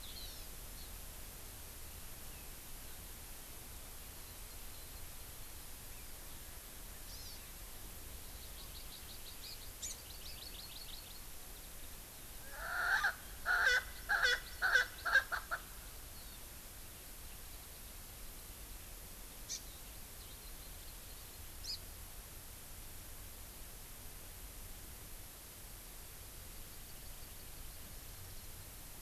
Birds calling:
Hawaii Amakihi (Chlorodrepanis virens), Erckel's Francolin (Pternistis erckelii)

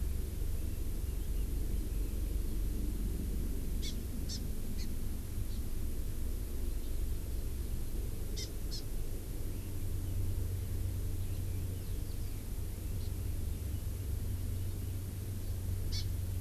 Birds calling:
Red-billed Leiothrix (Leiothrix lutea), Hawaii Amakihi (Chlorodrepanis virens)

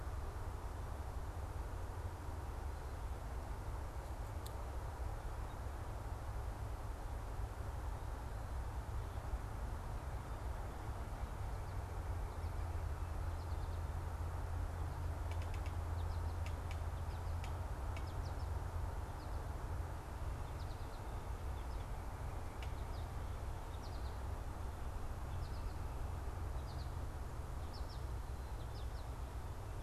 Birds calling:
American Goldfinch (Spinus tristis), unidentified bird

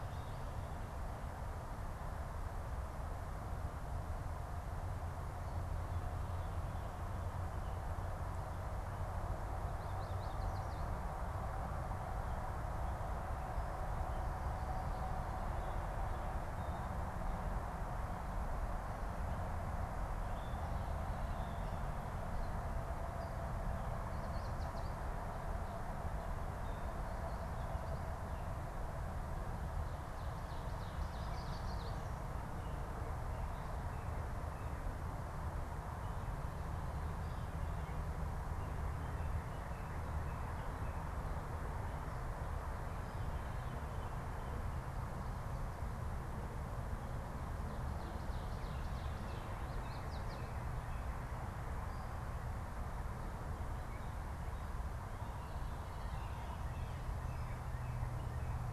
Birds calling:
Veery (Catharus fuscescens), Ovenbird (Seiurus aurocapilla), Yellow Warbler (Setophaga petechia), Northern Cardinal (Cardinalis cardinalis)

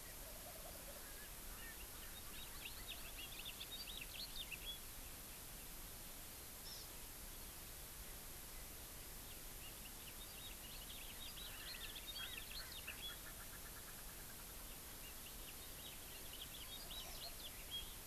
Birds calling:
Hawaii Amakihi (Chlorodrepanis virens), Erckel's Francolin (Pternistis erckelii), House Finch (Haemorhous mexicanus), Wild Turkey (Meleagris gallopavo)

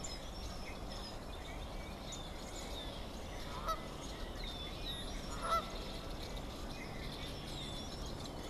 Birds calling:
Canada Goose (Branta canadensis), unidentified bird

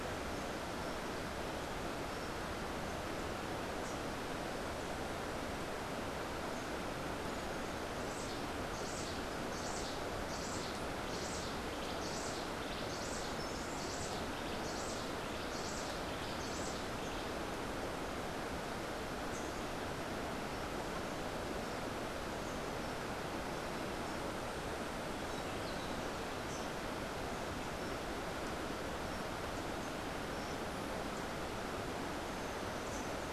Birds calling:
Cabanis's Wren (Cantorchilus modestus)

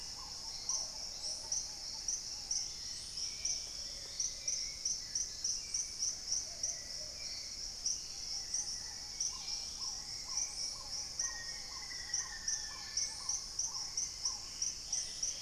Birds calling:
Black-tailed Trogon (Trogon melanurus), Dusky-capped Greenlet (Pachysylvia hypoxantha), Plumbeous Pigeon (Patagioenas plumbea), Hauxwell's Thrush (Turdus hauxwelli), Black-faced Antthrush (Formicarius analis), Long-winged Antwren (Myrmotherula longipennis), Paradise Tanager (Tangara chilensis), Dusky-throated Antshrike (Thamnomanes ardesiacus)

